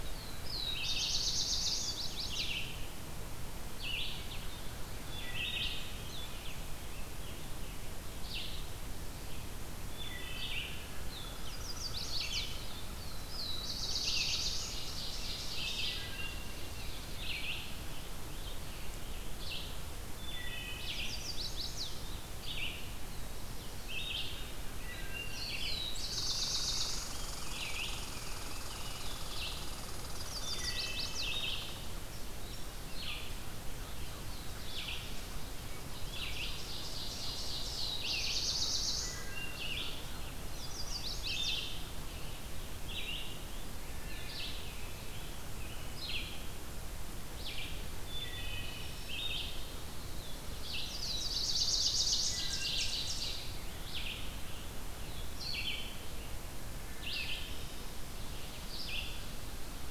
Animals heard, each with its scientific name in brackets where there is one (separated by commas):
Blackburnian Warbler (Setophaga fusca), American Robin (Turdus migratorius), Chestnut-sided Warbler (Setophaga pensylvanica), Rose-breasted Grosbeak (Pheucticus ludovicianus), Scarlet Tanager (Piranga olivacea), Red-eyed Vireo (Vireo olivaceus), Wood Thrush (Hylocichla mustelina), Black-throated Blue Warbler (Setophaga caerulescens), Blue-headed Vireo (Vireo solitarius), Ovenbird (Seiurus aurocapilla), Red Squirrel (Tamiasciurus hudsonicus)